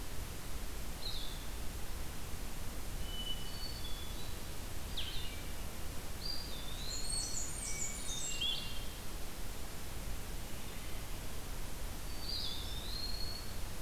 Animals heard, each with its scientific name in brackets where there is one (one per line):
Blue-headed Vireo (Vireo solitarius)
Eastern Wood-Pewee (Contopus virens)
Hermit Thrush (Catharus guttatus)
Blackburnian Warbler (Setophaga fusca)